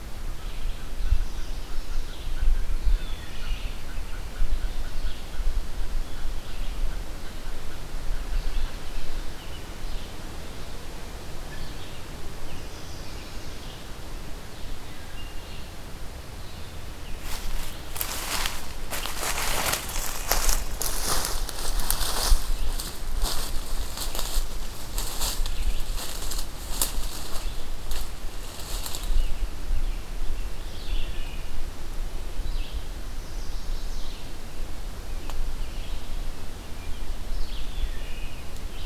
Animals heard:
Chestnut-sided Warbler (Setophaga pensylvanica), Mallard (Anas platyrhynchos), Red-eyed Vireo (Vireo olivaceus)

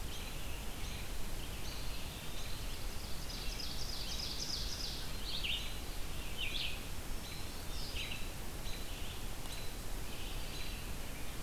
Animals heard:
Red-eyed Vireo (Vireo olivaceus), American Robin (Turdus migratorius), Ovenbird (Seiurus aurocapilla), Black-throated Green Warbler (Setophaga virens), Eastern Wood-Pewee (Contopus virens)

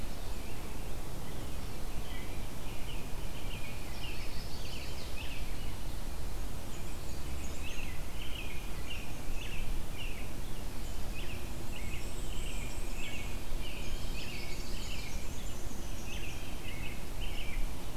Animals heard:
Chestnut-sided Warbler (Setophaga pensylvanica), American Robin (Turdus migratorius), Black-and-white Warbler (Mniotilta varia)

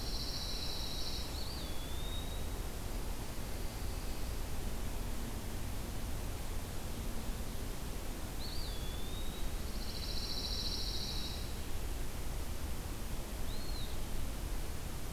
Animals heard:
Eastern Wood-Pewee (Contopus virens), Pine Warbler (Setophaga pinus)

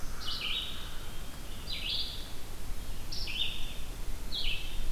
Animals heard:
Black-throated Blue Warbler (Setophaga caerulescens), Red-eyed Vireo (Vireo olivaceus), American Crow (Corvus brachyrhynchos)

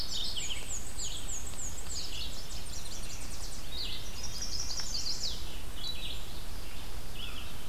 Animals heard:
Tennessee Warbler (Leiothlypis peregrina), Chestnut-sided Warbler (Setophaga pensylvanica), American Crow (Corvus brachyrhynchos), Red-eyed Vireo (Vireo olivaceus), Yellow-rumped Warbler (Setophaga coronata), Mourning Warbler (Geothlypis philadelphia), Black-and-white Warbler (Mniotilta varia)

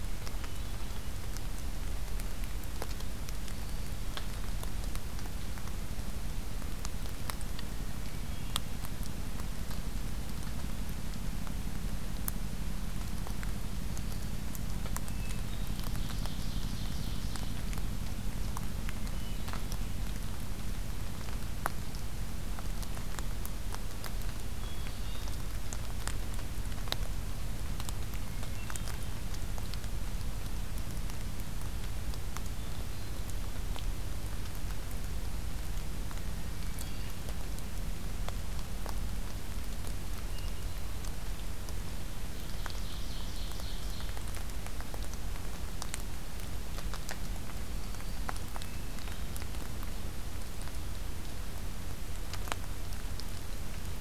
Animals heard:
Black-throated Green Warbler (Setophaga virens), Hermit Thrush (Catharus guttatus), Ovenbird (Seiurus aurocapilla)

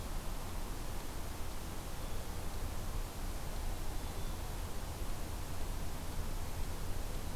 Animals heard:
Blue Jay (Cyanocitta cristata), Black-throated Green Warbler (Setophaga virens)

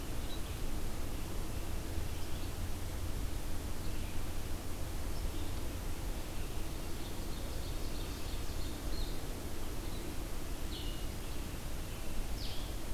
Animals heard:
Red-eyed Vireo (Vireo olivaceus), Ovenbird (Seiurus aurocapilla), Blue-headed Vireo (Vireo solitarius)

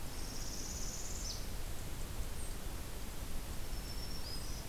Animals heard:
Northern Parula (Setophaga americana), Black-throated Green Warbler (Setophaga virens)

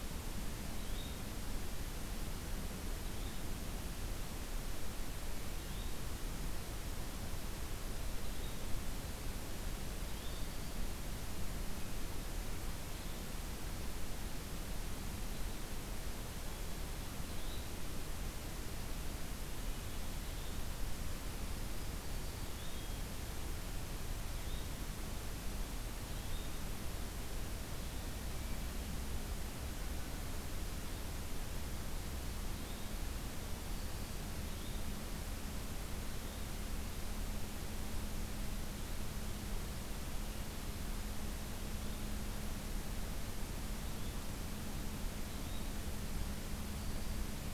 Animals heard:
Yellow-bellied Flycatcher (Empidonax flaviventris)

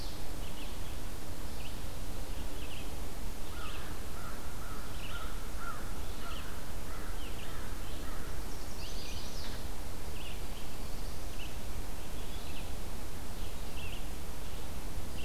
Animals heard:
American Crow (Corvus brachyrhynchos), Chestnut-sided Warbler (Setophaga pensylvanica), Red-eyed Vireo (Vireo olivaceus)

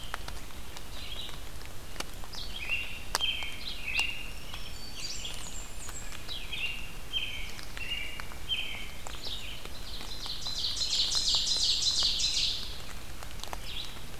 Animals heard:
Blackburnian Warbler (Setophaga fusca), Ovenbird (Seiurus aurocapilla), American Robin (Turdus migratorius), Red-eyed Vireo (Vireo olivaceus), Black-throated Green Warbler (Setophaga virens)

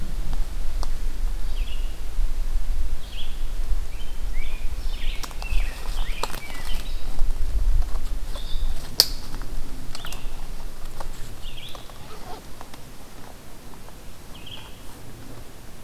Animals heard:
Rose-breasted Grosbeak (Pheucticus ludovicianus), Red-eyed Vireo (Vireo olivaceus)

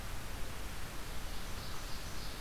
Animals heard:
Ovenbird (Seiurus aurocapilla)

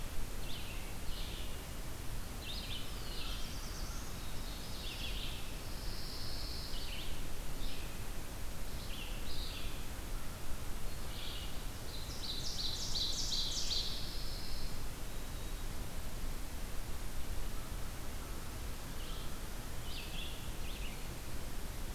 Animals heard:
Red-eyed Vireo (Vireo olivaceus), Pine Warbler (Setophaga pinus), Ovenbird (Seiurus aurocapilla), Black-throated Blue Warbler (Setophaga caerulescens)

